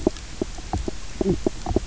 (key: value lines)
label: biophony, knock croak
recorder: SoundTrap 300